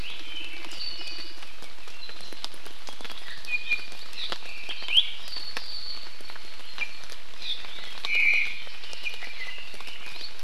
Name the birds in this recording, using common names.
Iiwi, Apapane, Omao